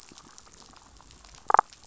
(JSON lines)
{"label": "biophony, damselfish", "recorder": "SoundTrap 500"}